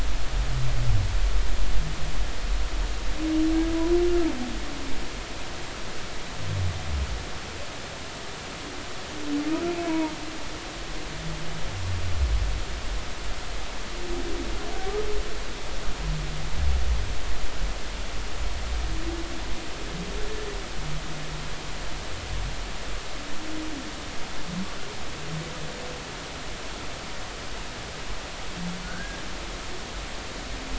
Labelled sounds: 9.8	10.1	humpback whale, 0.90 to 1.1 kHz
28.8	29.2	humpback whale, 1.4 to 1.7 kHz

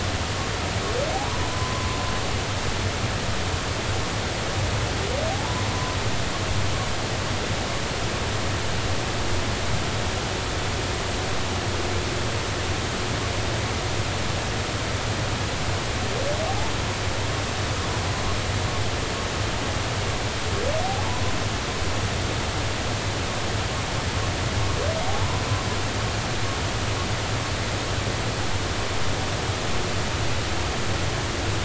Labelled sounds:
1.2	2.0	humpback whale, 0.93 to 1.1 kHz
5.3	5.7	humpback whale, 0.80 to 1.1 kHz
16.4	16.7	humpback whale, 0.80 to 0.96 kHz
25.1	25.4	humpback whale, 0.80 to 1.1 kHz

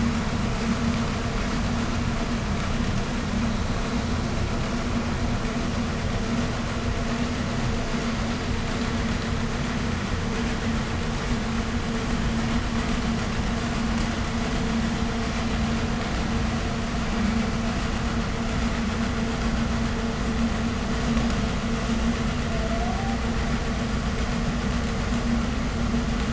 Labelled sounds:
22.4	23.3	humpback whale, 0.50 to 0.89 kHz

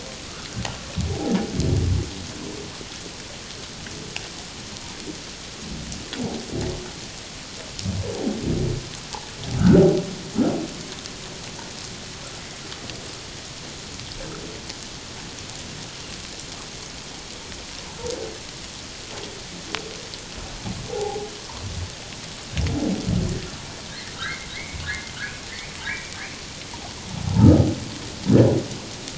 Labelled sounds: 9.6	9.9	humpback whale, 1.2 to 1.6 kHz
20.9	21.3	humpback whale, 0.78 to 0.91 kHz
24.1	24.8	humpback whale, 1.2 to 2.3 kHz
25.9	26.2	humpback whale, 2.1 to 2.4 kHz
27.2	27.7	humpback whale, 0.78 to 1.4 kHz

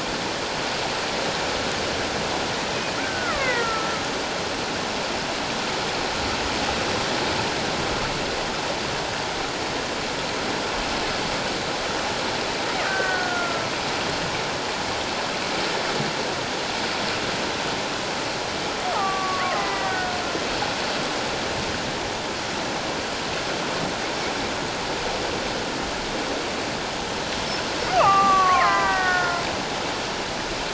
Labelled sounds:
3.0	4.0	killer whale, Bigg's (transient), 1.0 to 2.2 kHz
12.9	13.6	killer whale, Bigg's (transient), 1.1 to 1.9 kHz
18.9	20.2	killer whale, Bigg's (transient), 0.78 to 2.0 kHz
27.9	29.4	killer whale, Bigg's (transient), 0.78 to 2.4 kHz

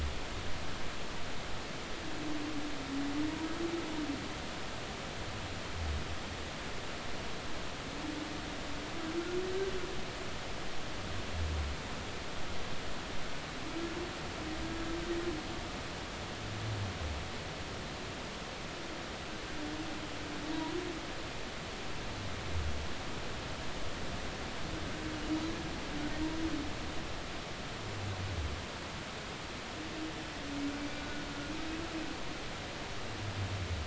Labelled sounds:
30.9	31.2	humpback whale, 1.4 to 1.5 kHz

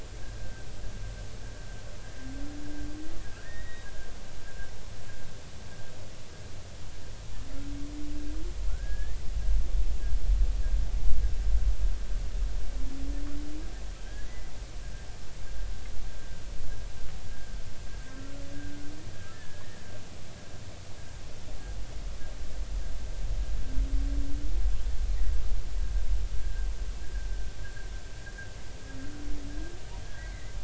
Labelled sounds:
3.3	3.9	humpback whale, 1.3 to 3.8 kHz
8.7	9.2	humpback whale, 1.3 to 1.9 kHz
14.0	14.3	humpback whale, 1.5 to 1.8 kHz
19.3	19.6	humpback whale, 1.6 to 1.9 kHz
26.4	26.7	humpback whale, 1.5 to 1.7 kHz
30.2	30.6	humpback whale, 1.8 to 2.2 kHz

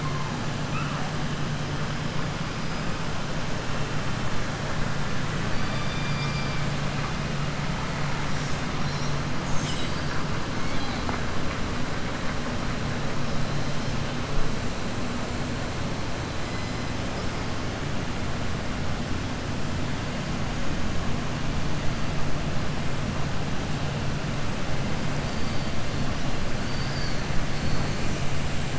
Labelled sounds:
5.5	6.6	killer whale, southern resident, 2.1 to 5.5 kHz
10.6	11.0	killer whale, southern resident, 1.6 to 4.9 kHz
26.6	27.2	killer whale, southern resident, 4.0 to 6.8 kHz

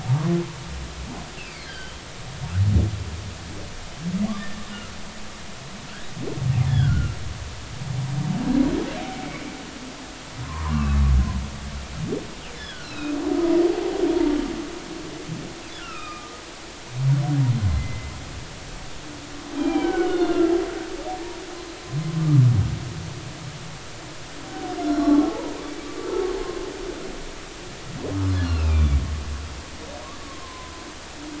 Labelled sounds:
1.4	2.0	humpback whale, 1.5 to 3.4 kHz
4.4	4.7	humpback whale, 1.7 to 1.9 kHz
6.7	7.2	humpback whale, 1.3 to 1.8 kHz
10.4	11.0	humpback whale, 0.90 to 2.8 kHz
12.6	13.1	humpback whale, 1.4 to 5.4 kHz
15.7	16.3	humpback whale, 1.1 to 2.9 kHz
17.7	18.1	humpback whale, 2.0 to 2.1 kHz
19.6	20.5	humpback whale, 1.3 to 3.7 kHz
22.2	22.4	humpback whale, 1.1 to 1.3 kHz
24.8	25.6	humpback whale, 0.80 to 5.6 kHz
26.4	26.7	humpback whale, 1.0 to 1.1 kHz
28.4	29.0	humpback whale, 2.2 to 3.6 kHz
30.2	30.8	humpback whale, 0.96 to 1.2 kHz

